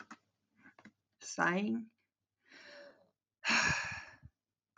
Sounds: Sigh